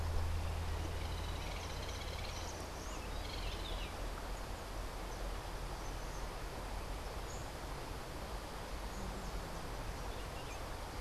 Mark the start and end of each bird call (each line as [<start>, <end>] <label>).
[0.95, 3.95] Hoffmann's Woodpecker (Melanerpes hoffmannii)